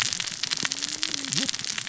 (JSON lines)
{"label": "biophony, cascading saw", "recorder": "SoundTrap 600 or HydroMoth"}